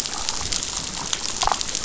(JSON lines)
{"label": "biophony, damselfish", "recorder": "SoundTrap 500"}